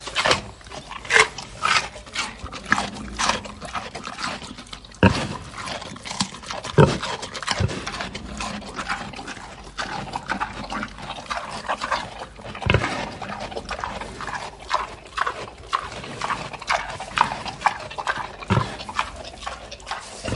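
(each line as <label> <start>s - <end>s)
A pig is chewing repeatedly. 0.0s - 20.4s
A pig grunts loudly once. 5.0s - 5.4s
A pig grunts loudly once. 6.6s - 7.1s
A pig grunts loudly once. 12.6s - 13.1s
A pig grunts once. 18.5s - 18.7s
A pig grunts once. 20.2s - 20.4s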